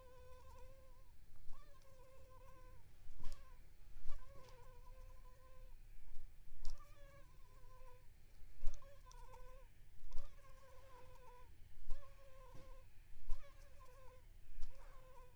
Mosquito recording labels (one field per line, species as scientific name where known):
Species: Anopheles arabiensis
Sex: female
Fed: unfed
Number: one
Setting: cup